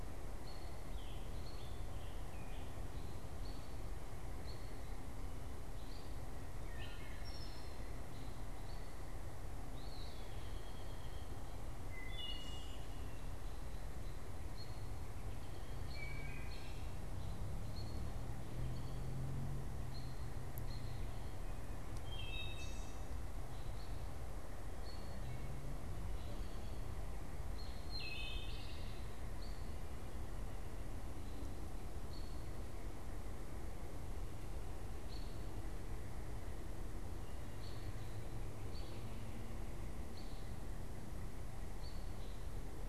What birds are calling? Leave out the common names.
Turdus migratorius, Piranga olivacea, Hylocichla mustelina, Contopus virens